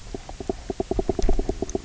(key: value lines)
label: biophony, knock croak
recorder: SoundTrap 300